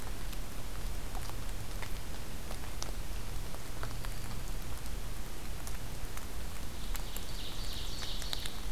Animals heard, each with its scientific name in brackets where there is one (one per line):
Black-throated Green Warbler (Setophaga virens)
Ovenbird (Seiurus aurocapilla)